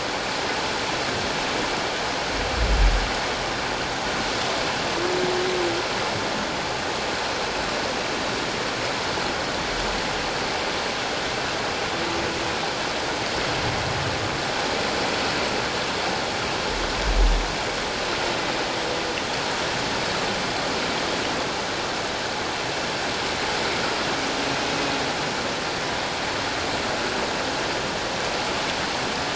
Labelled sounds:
24.7	25.0	humpback whale, 2.4 to 2.7 kHz

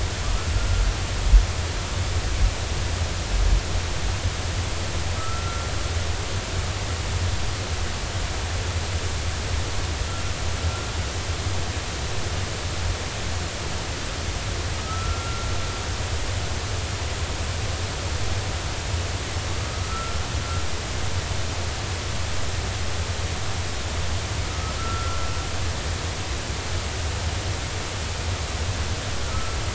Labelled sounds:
0.6	0.8	humpback whale, 1.3 to 1.4 kHz
5.2	5.7	humpback whale, 1.2 to 1.4 kHz
14.8	15.5	humpback whale, 1.2 to 1.5 kHz
19.9	20.2	humpback whale, 1.3 to 1.4 kHz
24.5	25.3	humpback whale, 1.2 to 1.4 kHz
29.2	29.6	humpback whale, 1.2 to 1.4 kHz

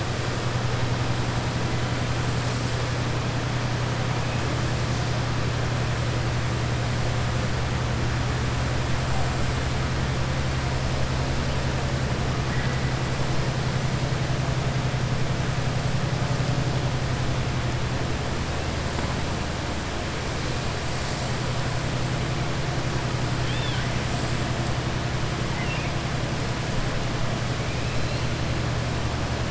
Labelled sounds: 23.4	23.9	killer whale, southern resident, 1.5 to 4.2 kHz
25.4	25.9	killer whale, southern resident, 1.8 to 3.7 kHz

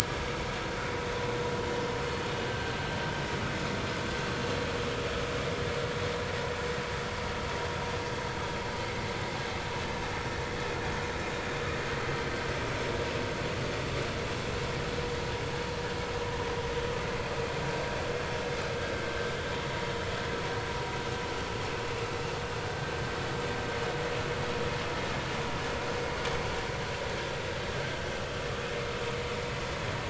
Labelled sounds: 21.5	21.7	vessel noise, 5.2 to 5.4 kHz
27.7	28.0	vessel noise, 1.5 to 1.6 kHz

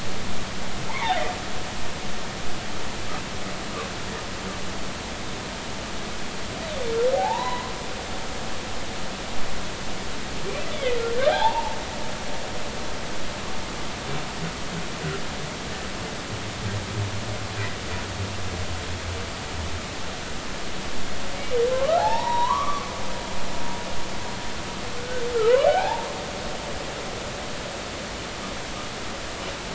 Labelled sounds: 0.9	1.3	humpback whale, 0.80 to 2.3 kHz
7.1	7.7	humpback whale, 0.80 to 4.1 kHz
10.7	11.0	humpback whale, 1.9 to 3.6 kHz
11.3	11.8	humpback whale, 0.80 to 1.0 kHz
21.7	22.9	humpback whale, 0.80 to 4.0 kHz
25.0	25.3	humpback whale, 1.4 to 1.6 kHz
25.7	26.1	humpback whale, 0.80 to 1.8 kHz

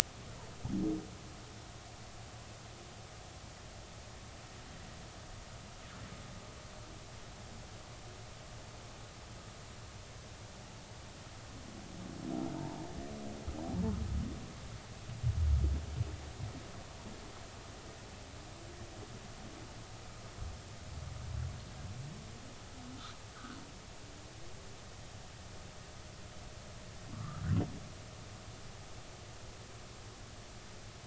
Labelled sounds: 27.1	27.4	humpback whale, 1.1 to 1.4 kHz

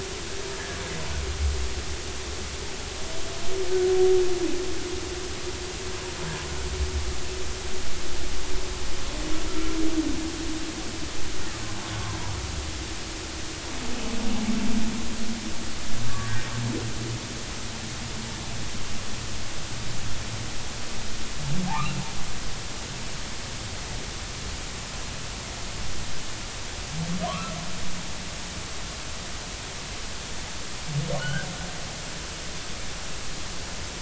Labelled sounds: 16.1	16.4	humpback whale, 1.5 to 1.9 kHz
21.7	22.0	humpback whale, 0.80 to 1.5 kHz
27.3	27.5	humpback whale, 0.96 to 1.4 kHz
31.2	31.5	humpback whale, 1.4 to 1.7 kHz

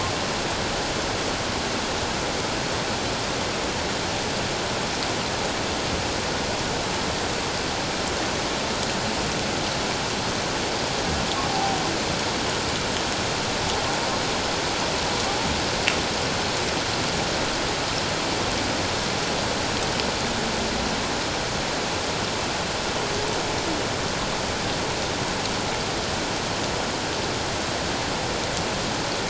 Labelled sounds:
11.5	11.8	humpback whale, 0.78 to 0.91 kHz

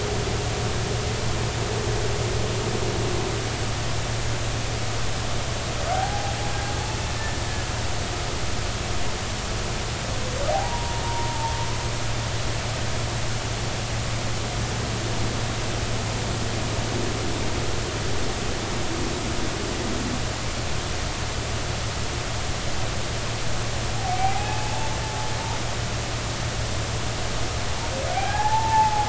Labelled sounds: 5.9	6.3	humpback whale, 0.80 to 0.86 kHz
10.5	11.3	humpback whale, 0.80 to 0.99 kHz
24.0	24.9	humpback whale, 0.80 to 0.93 kHz
28.1	29.0	humpback whale, 0.80 to 2.5 kHz

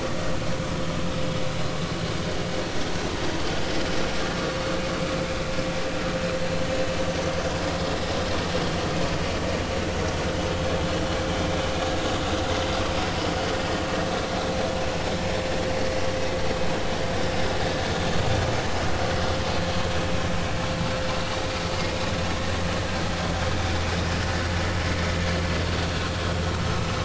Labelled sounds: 15.8	16.0	vessel noise, 4.3 to 4.5 kHz

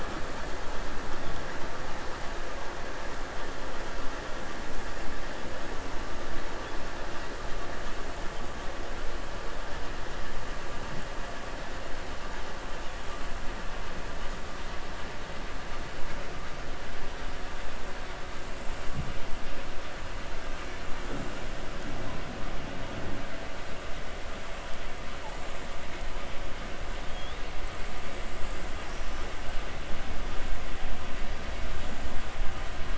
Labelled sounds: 27.0	27.4	killer whale, 3.2 to 4.2 kHz

